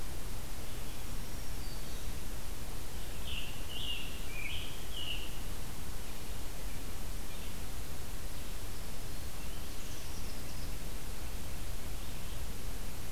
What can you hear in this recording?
Black-throated Green Warbler, Scarlet Tanager, Chimney Swift